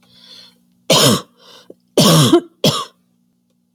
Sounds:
Cough